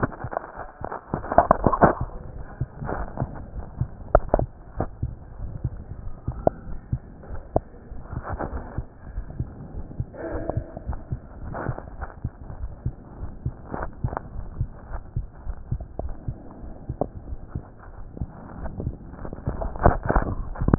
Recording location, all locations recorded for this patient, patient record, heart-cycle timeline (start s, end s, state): aortic valve (AV)
aortic valve (AV)+pulmonary valve (PV)+tricuspid valve (TV)+mitral valve (MV)
#Age: Child
#Sex: Male
#Height: 139.0 cm
#Weight: 32.5 kg
#Pregnancy status: False
#Murmur: Absent
#Murmur locations: nan
#Most audible location: nan
#Systolic murmur timing: nan
#Systolic murmur shape: nan
#Systolic murmur grading: nan
#Systolic murmur pitch: nan
#Systolic murmur quality: nan
#Diastolic murmur timing: nan
#Diastolic murmur shape: nan
#Diastolic murmur grading: nan
#Diastolic murmur pitch: nan
#Diastolic murmur quality: nan
#Outcome: Abnormal
#Campaign: 2015 screening campaign
0.00	8.51	unannotated
8.51	8.66	S1
8.66	8.74	systole
8.74	8.84	S2
8.84	9.10	diastole
9.10	9.24	S1
9.24	9.36	systole
9.36	9.48	S2
9.48	9.76	diastole
9.76	9.86	S1
9.86	9.98	systole
9.98	10.08	S2
10.08	10.32	diastole
10.32	10.44	S1
10.44	10.54	systole
10.54	10.64	S2
10.64	10.86	diastole
10.86	11.00	S1
11.00	11.08	systole
11.08	11.20	S2
11.20	11.44	diastole
11.44	11.58	S1
11.58	11.66	systole
11.66	11.76	S2
11.76	12.00	diastole
12.00	12.12	S1
12.12	12.22	systole
12.22	12.32	S2
12.32	12.60	diastole
12.60	12.74	S1
12.74	12.82	systole
12.82	12.94	S2
12.94	13.20	diastole
13.20	13.32	S1
13.32	13.44	systole
13.44	13.54	S2
13.54	13.78	diastole
13.78	13.92	S1
13.92	14.02	systole
14.02	14.14	S2
14.14	14.36	diastole
14.36	14.50	S1
14.50	14.58	systole
14.58	14.70	S2
14.70	14.92	diastole
14.92	15.02	S1
15.02	15.16	systole
15.16	15.26	S2
15.26	15.46	diastole
15.46	15.56	S1
15.56	15.70	systole
15.70	15.82	S2
15.82	16.02	diastole
16.02	16.16	S1
16.16	16.26	systole
16.26	16.38	S2
16.38	16.64	diastole
16.64	16.74	S1
16.74	16.88	systole
16.88	16.98	S2
16.98	17.26	diastole
17.26	17.40	S1
17.40	17.54	systole
17.54	17.64	S2
17.64	17.96	diastole
17.96	18.08	S1
18.08	18.20	systole
18.20	18.30	S2
18.30	18.60	diastole
18.60	18.72	S1
18.72	18.80	systole
18.80	18.96	S2
18.96	19.22	diastole
19.22	19.34	S1
19.34	19.46	systole
19.46	19.58	S2
19.58	19.82	diastole
19.82	20.78	unannotated